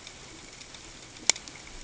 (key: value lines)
label: ambient
recorder: HydroMoth